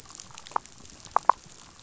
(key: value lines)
label: biophony
recorder: SoundTrap 500